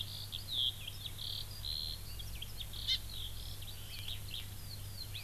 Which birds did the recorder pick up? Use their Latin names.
Alauda arvensis, Chlorodrepanis virens